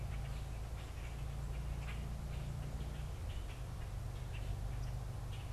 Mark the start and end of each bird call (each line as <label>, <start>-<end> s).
Common Grackle (Quiscalus quiscula), 0.0-5.5 s
unidentified bird, 4.6-5.5 s